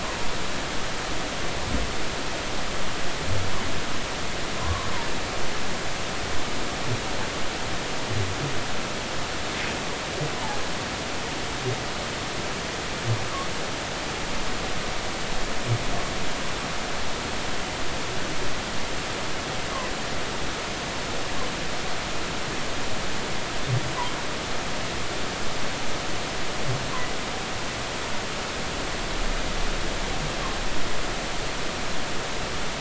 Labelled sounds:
4.6	4.9	humpback whale, 0.96 to 1.2 kHz
10.3	10.6	humpback whale, 0.80 to 1.0 kHz

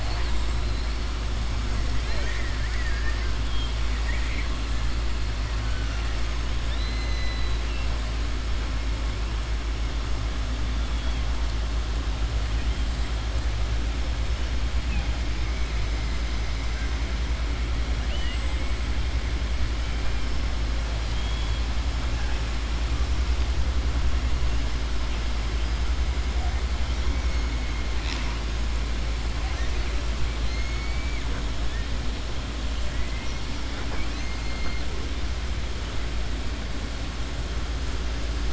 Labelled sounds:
2.6	3.3	killer whale, southern resident, 1.2 to 2.4 kHz
3.9	4.5	killer whale, southern resident, 1.2 to 3.6 kHz
6.6	7.9	killer whale, southern resident, 2.0 to 6.2 kHz
21.1	21.6	killer whale, southern resident, 2.6 to 4.2 kHz
30.5	31.2	killer whale, southern resident, 1.3 to 2.4 kHz

